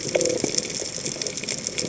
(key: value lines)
label: biophony
recorder: HydroMoth